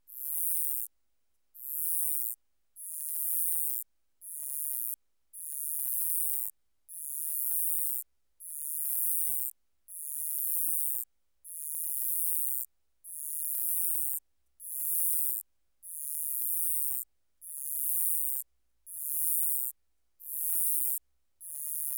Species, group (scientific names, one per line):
Uromenus rugosicollis
Orthoptera